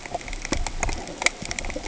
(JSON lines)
{"label": "ambient", "recorder": "HydroMoth"}